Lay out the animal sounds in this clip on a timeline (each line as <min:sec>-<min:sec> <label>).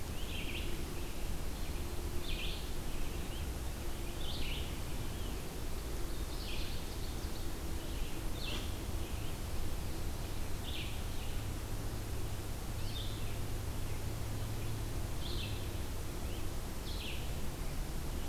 0:00.1-0:18.3 Red-eyed Vireo (Vireo olivaceus)
0:05.9-0:07.8 Ovenbird (Seiurus aurocapilla)